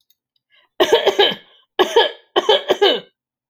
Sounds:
Cough